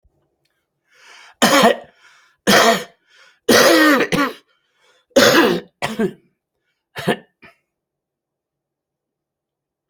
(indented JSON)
{
  "expert_labels": [
    {
      "quality": "ok",
      "cough_type": "dry",
      "dyspnea": false,
      "wheezing": false,
      "stridor": false,
      "choking": false,
      "congestion": false,
      "nothing": false,
      "diagnosis": "upper respiratory tract infection",
      "severity": "mild"
    }
  ],
  "age": 76,
  "gender": "male",
  "respiratory_condition": false,
  "fever_muscle_pain": false,
  "status": "COVID-19"
}